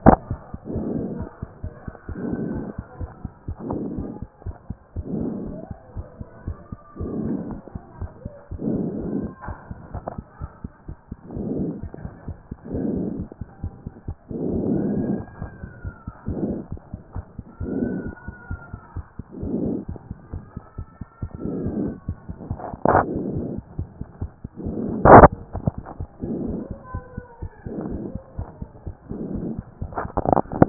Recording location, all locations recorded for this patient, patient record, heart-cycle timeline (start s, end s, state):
mitral valve (MV)
pulmonary valve (PV)+tricuspid valve (TV)+mitral valve (MV)
#Age: Child
#Sex: Female
#Height: 134.0 cm
#Weight: 29.6 kg
#Pregnancy status: False
#Murmur: Absent
#Murmur locations: nan
#Most audible location: nan
#Systolic murmur timing: nan
#Systolic murmur shape: nan
#Systolic murmur grading: nan
#Systolic murmur pitch: nan
#Systolic murmur quality: nan
#Diastolic murmur timing: nan
#Diastolic murmur shape: nan
#Diastolic murmur grading: nan
#Diastolic murmur pitch: nan
#Diastolic murmur quality: nan
#Outcome: Abnormal
#Campaign: 2014 screening campaign
0.00	3.00	unannotated
3.00	3.07	S1
3.07	3.24	systole
3.24	3.28	S2
3.28	3.47	diastole
3.47	3.54	S1
3.54	3.71	systole
3.71	3.76	S2
3.76	3.96	diastole
3.96	4.04	S1
4.04	4.21	systole
4.21	4.26	S2
4.26	4.45	diastole
4.45	4.52	S1
4.52	4.69	systole
4.69	4.73	S2
4.73	4.97	diastole
4.97	5.05	S1
5.05	5.19	systole
5.19	5.23	S2
5.23	5.43	unannotated
5.43	30.69	unannotated